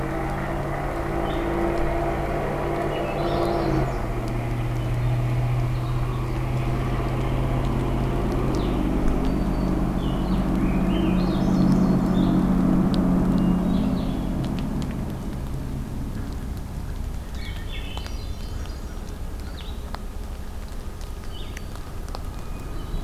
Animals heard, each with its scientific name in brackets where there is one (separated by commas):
Black-throated Green Warbler (Setophaga virens), Swainson's Thrush (Catharus ustulatus), Blue-headed Vireo (Vireo solitarius), Hermit Thrush (Catharus guttatus)